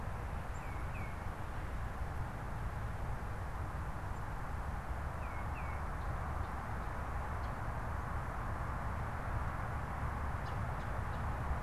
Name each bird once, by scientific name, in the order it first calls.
Baeolophus bicolor